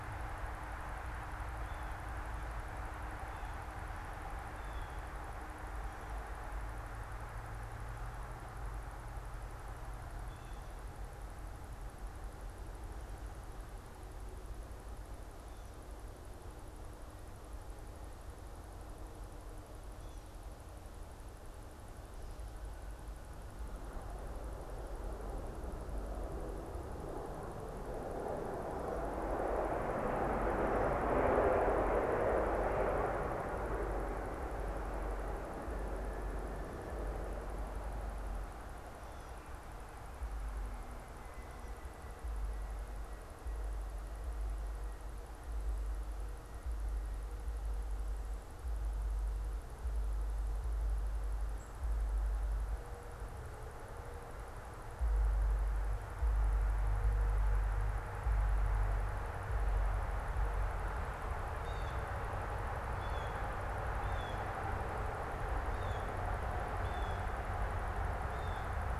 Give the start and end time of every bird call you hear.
[1.40, 10.90] Blue Jay (Cyanocitta cristata)
[61.50, 68.90] Blue Jay (Cyanocitta cristata)

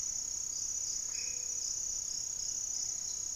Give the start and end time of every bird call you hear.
[0.00, 3.35] Gray-fronted Dove (Leptotila rufaxilla)
[0.89, 1.59] Black-faced Antthrush (Formicarius analis)

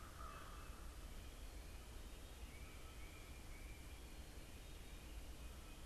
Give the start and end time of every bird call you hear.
[0.00, 0.84] American Crow (Corvus brachyrhynchos)
[2.44, 5.86] Tufted Titmouse (Baeolophus bicolor)

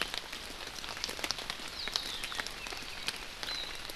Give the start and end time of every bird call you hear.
[1.93, 3.23] Apapane (Himatione sanguinea)

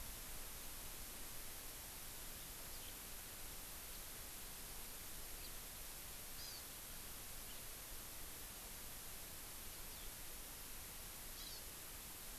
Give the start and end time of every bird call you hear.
[2.70, 2.90] House Finch (Haemorhous mexicanus)
[5.40, 5.50] House Finch (Haemorhous mexicanus)
[6.40, 6.60] Hawaii Amakihi (Chlorodrepanis virens)
[9.90, 10.10] Eurasian Skylark (Alauda arvensis)
[11.30, 11.60] Hawaii Amakihi (Chlorodrepanis virens)

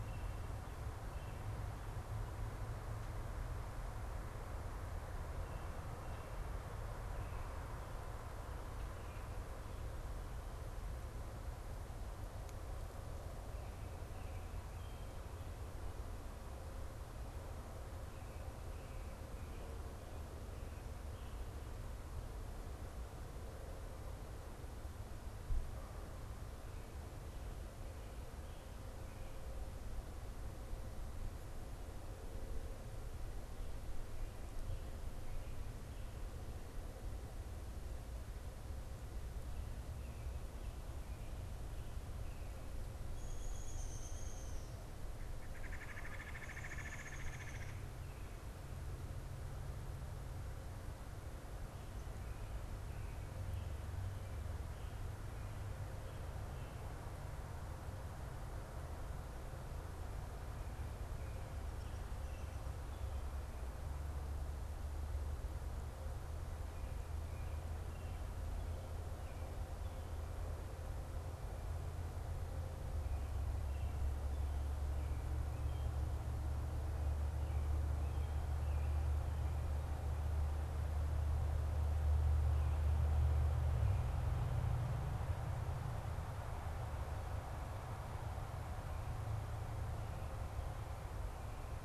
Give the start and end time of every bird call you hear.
[0.00, 1.60] Red-bellied Woodpecker (Melanerpes carolinus)
[43.00, 47.70] Downy Woodpecker (Dryobates pubescens)
[45.20, 48.00] Red-bellied Woodpecker (Melanerpes carolinus)

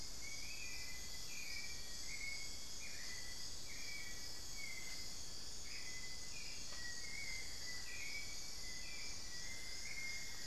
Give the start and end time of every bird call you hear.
[0.00, 9.97] Little Tinamou (Crypturellus soui)
[0.00, 10.46] Hauxwell's Thrush (Turdus hauxwelli)
[0.00, 10.46] unidentified bird
[9.27, 10.46] Cinnamon-throated Woodcreeper (Dendrexetastes rufigula)

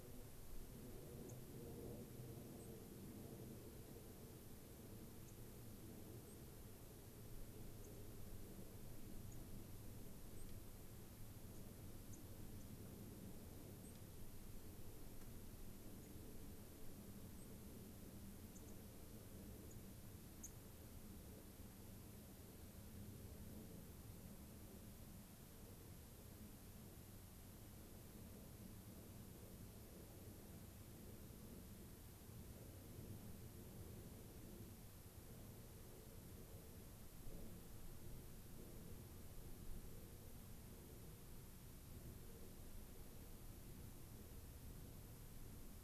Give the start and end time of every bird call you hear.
[2.50, 2.70] White-crowned Sparrow (Zonotrichia leucophrys)
[5.20, 5.30] Dark-eyed Junco (Junco hyemalis)
[6.20, 6.40] Dark-eyed Junco (Junco hyemalis)
[7.80, 8.00] Dark-eyed Junco (Junco hyemalis)
[9.30, 9.40] Dark-eyed Junco (Junco hyemalis)
[10.30, 10.50] Dark-eyed Junco (Junco hyemalis)
[11.50, 11.60] Dark-eyed Junco (Junco hyemalis)
[12.10, 12.20] Dark-eyed Junco (Junco hyemalis)
[12.60, 12.70] Dark-eyed Junco (Junco hyemalis)
[13.80, 13.90] Dark-eyed Junco (Junco hyemalis)
[16.00, 16.10] Dark-eyed Junco (Junco hyemalis)
[17.30, 17.50] Dark-eyed Junco (Junco hyemalis)
[18.50, 18.70] Dark-eyed Junco (Junco hyemalis)
[19.70, 19.80] Dark-eyed Junco (Junco hyemalis)
[20.40, 20.50] Dark-eyed Junco (Junco hyemalis)

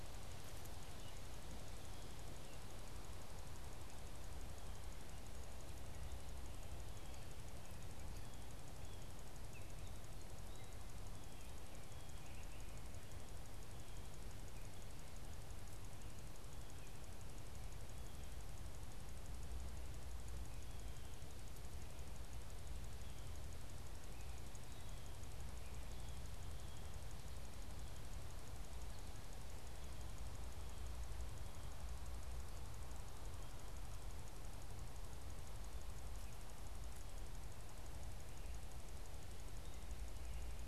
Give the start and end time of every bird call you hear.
[9.24, 13.04] Gray Catbird (Dumetella carolinensis)

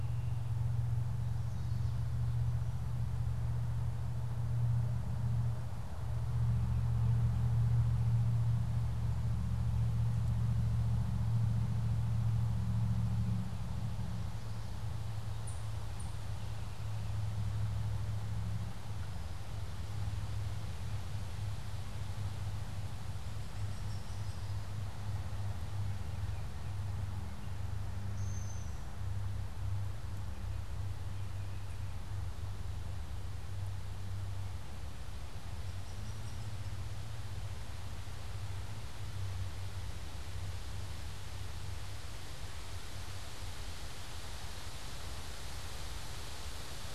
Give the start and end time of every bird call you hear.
[15.26, 16.26] unidentified bird
[23.26, 24.76] Hairy Woodpecker (Dryobates villosus)
[27.96, 28.96] Brown-headed Cowbird (Molothrus ater)
[35.26, 37.06] Hairy Woodpecker (Dryobates villosus)

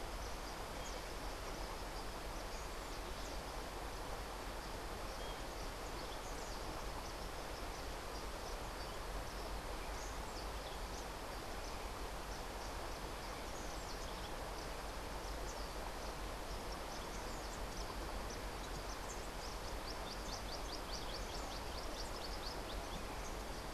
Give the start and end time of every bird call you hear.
[19.25, 22.95] House Wren (Troglodytes aedon)

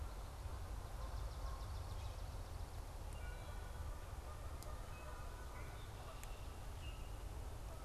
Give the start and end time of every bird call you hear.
[0.00, 7.84] Canada Goose (Branta canadensis)
[0.74, 3.04] Swamp Sparrow (Melospiza georgiana)
[2.94, 3.54] Wood Thrush (Hylocichla mustelina)
[6.64, 7.34] Common Grackle (Quiscalus quiscula)

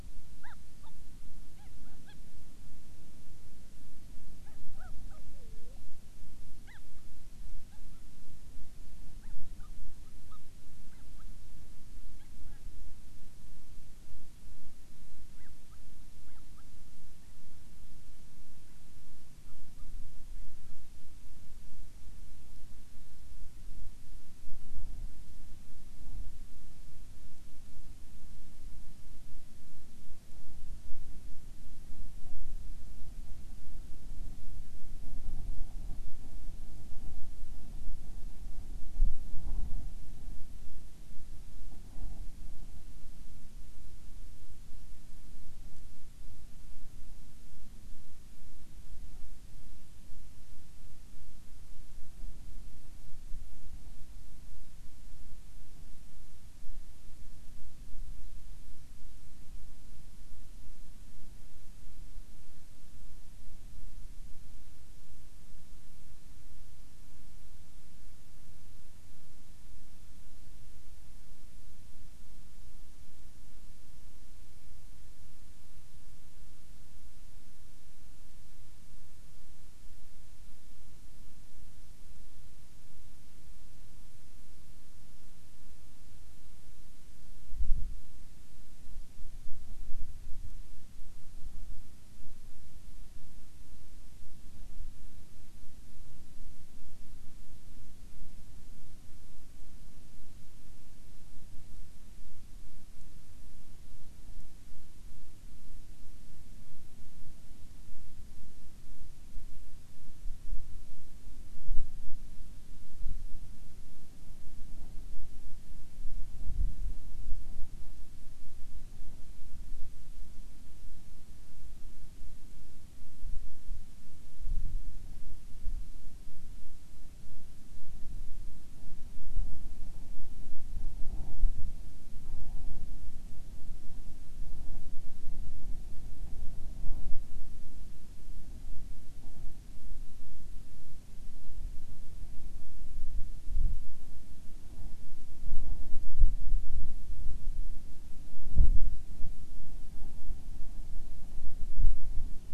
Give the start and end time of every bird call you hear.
[0.40, 1.00] Hawaiian Petrel (Pterodroma sandwichensis)
[1.50, 2.20] Hawaiian Petrel (Pterodroma sandwichensis)
[4.40, 5.90] Hawaiian Petrel (Pterodroma sandwichensis)
[6.60, 7.00] Hawaiian Petrel (Pterodroma sandwichensis)
[7.70, 8.10] Hawaiian Petrel (Pterodroma sandwichensis)
[9.20, 12.60] Hawaiian Petrel (Pterodroma sandwichensis)
[15.30, 16.70] Hawaiian Petrel (Pterodroma sandwichensis)
[19.40, 20.00] Hawaiian Petrel (Pterodroma sandwichensis)

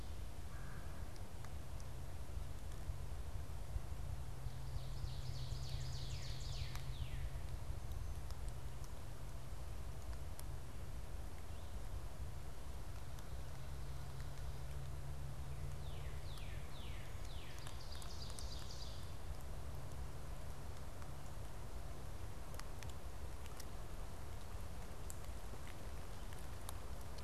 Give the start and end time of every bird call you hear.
[4.70, 7.20] Ovenbird (Seiurus aurocapilla)
[5.40, 7.50] Northern Cardinal (Cardinalis cardinalis)
[15.70, 18.00] Northern Cardinal (Cardinalis cardinalis)
[17.30, 19.40] Ovenbird (Seiurus aurocapilla)

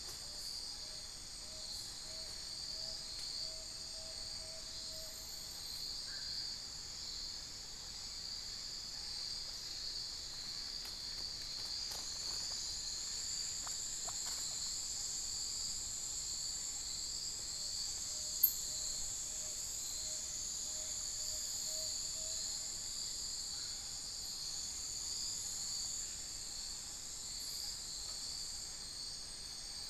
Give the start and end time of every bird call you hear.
[0.00, 5.40] Tawny-bellied Screech-Owl (Megascops watsonii)
[11.40, 14.80] unidentified bird
[17.40, 22.80] Tawny-bellied Screech-Owl (Megascops watsonii)

